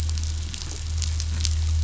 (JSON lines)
{"label": "anthrophony, boat engine", "recorder": "SoundTrap 500"}